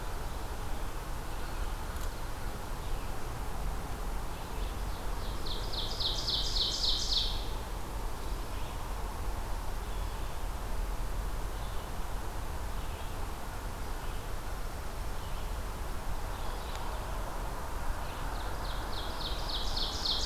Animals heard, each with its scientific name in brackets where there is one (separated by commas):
Ovenbird (Seiurus aurocapilla), Red-eyed Vireo (Vireo olivaceus)